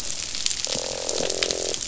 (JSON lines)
{"label": "biophony, croak", "recorder": "SoundTrap 500"}